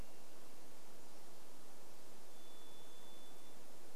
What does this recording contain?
Varied Thrush song